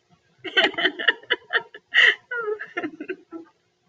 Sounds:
Laughter